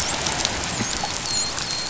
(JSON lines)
{"label": "biophony, dolphin", "recorder": "SoundTrap 500"}